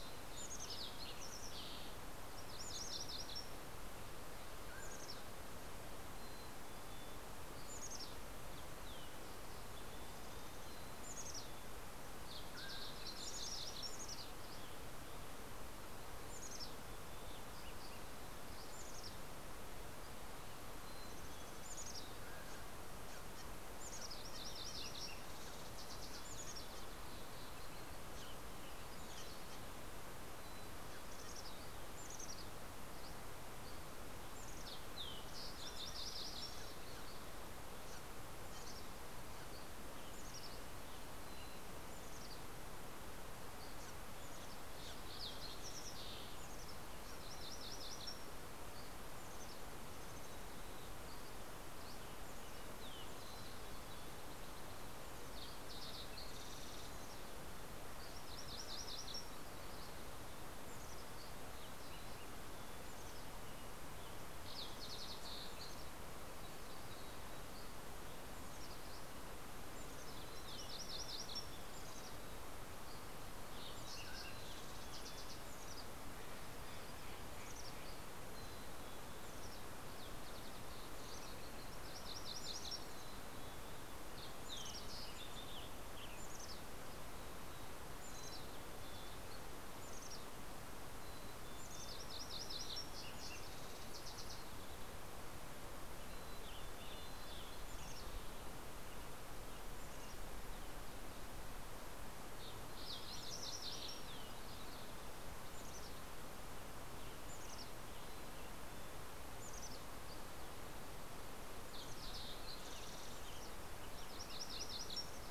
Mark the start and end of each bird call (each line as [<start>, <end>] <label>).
[0.00, 1.10] Mountain Chickadee (Poecile gambeli)
[0.00, 2.30] Fox Sparrow (Passerella iliaca)
[1.90, 3.90] MacGillivray's Warbler (Geothlypis tolmiei)
[2.30, 3.30] Mountain Chickadee (Poecile gambeli)
[4.40, 8.80] Mountain Chickadee (Poecile gambeli)
[4.50, 5.30] Mountain Quail (Oreortyx pictus)
[8.20, 11.20] Green-tailed Towhee (Pipilo chlorurus)
[10.60, 12.00] Mountain Chickadee (Poecile gambeli)
[12.00, 13.10] Mountain Quail (Oreortyx pictus)
[12.10, 15.00] MacGillivray's Warbler (Geothlypis tolmiei)
[13.20, 15.10] Mountain Chickadee (Poecile gambeli)
[16.00, 20.30] Mountain Chickadee (Poecile gambeli)
[20.80, 22.60] Mountain Chickadee (Poecile gambeli)
[21.80, 22.60] Mountain Quail (Oreortyx pictus)
[22.80, 26.90] Green-tailed Towhee (Pipilo chlorurus)
[23.40, 24.40] Mountain Chickadee (Poecile gambeli)
[23.90, 25.60] MacGillivray's Warbler (Geothlypis tolmiei)
[25.70, 27.30] Mountain Chickadee (Poecile gambeli)
[30.10, 32.80] Mountain Chickadee (Poecile gambeli)
[32.60, 34.20] Dusky Flycatcher (Empidonax oberholseri)
[34.00, 37.20] Fox Sparrow (Passerella iliaca)
[34.90, 37.20] MacGillivray's Warbler (Geothlypis tolmiei)
[38.20, 42.70] Mountain Chickadee (Poecile gambeli)
[43.60, 46.80] Green-tailed Towhee (Pipilo chlorurus)
[47.00, 48.60] MacGillivray's Warbler (Geothlypis tolmiei)
[48.50, 49.30] Dusky Flycatcher (Empidonax oberholseri)
[50.70, 52.30] Dusky Flycatcher (Empidonax oberholseri)
[53.10, 54.80] Mountain Chickadee (Poecile gambeli)
[55.00, 57.60] Green-tailed Towhee (Pipilo chlorurus)
[57.70, 59.80] MacGillivray's Warbler (Geothlypis tolmiei)
[60.50, 64.20] Mountain Chickadee (Poecile gambeli)
[63.90, 66.10] Spotted Towhee (Pipilo maculatus)
[67.40, 68.40] Dusky Flycatcher (Empidonax oberholseri)
[69.70, 70.70] Mountain Chickadee (Poecile gambeli)
[70.30, 72.30] MacGillivray's Warbler (Geothlypis tolmiei)
[71.70, 72.60] Mountain Chickadee (Poecile gambeli)
[72.70, 73.50] Dusky Flycatcher (Empidonax oberholseri)
[72.90, 75.50] Fox Sparrow (Passerella iliaca)
[73.70, 74.70] Mountain Quail (Oreortyx pictus)
[73.70, 75.40] Mountain Chickadee (Poecile gambeli)
[76.00, 78.20] Steller's Jay (Cyanocitta stelleri)
[77.00, 80.20] Mountain Chickadee (Poecile gambeli)
[80.70, 82.30] Mountain Chickadee (Poecile gambeli)
[81.30, 83.30] MacGillivray's Warbler (Geothlypis tolmiei)
[82.90, 84.10] Mountain Chickadee (Poecile gambeli)
[83.30, 85.60] Fox Sparrow (Passerella iliaca)
[85.10, 86.80] Western Tanager (Piranga ludoviciana)
[86.10, 86.90] Mountain Chickadee (Poecile gambeli)
[87.40, 93.50] Mountain Chickadee (Poecile gambeli)
[91.80, 93.50] MacGillivray's Warbler (Geothlypis tolmiei)
[92.30, 95.60] Fox Sparrow (Passerella iliaca)
[95.40, 98.40] Western Tanager (Piranga ludoviciana)
[95.60, 101.10] Mountain Chickadee (Poecile gambeli)
[102.10, 104.20] MacGillivray's Warbler (Geothlypis tolmiei)
[105.30, 110.70] Mountain Chickadee (Poecile gambeli)
[106.40, 109.20] Western Tanager (Piranga ludoviciana)
[110.60, 113.50] Fox Sparrow (Passerella iliaca)
[112.30, 115.30] Western Tanager (Piranga ludoviciana)
[113.80, 115.30] MacGillivray's Warbler (Geothlypis tolmiei)